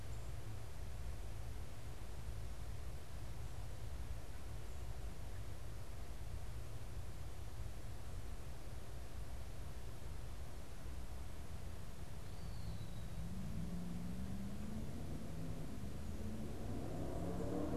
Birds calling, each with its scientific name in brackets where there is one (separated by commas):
Eastern Wood-Pewee (Contopus virens)